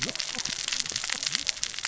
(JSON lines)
{"label": "biophony, cascading saw", "recorder": "SoundTrap 600 or HydroMoth"}